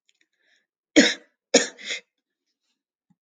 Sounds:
Throat clearing